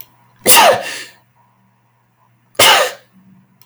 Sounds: Sneeze